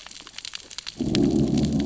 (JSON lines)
{"label": "biophony, growl", "recorder": "SoundTrap 600 or HydroMoth"}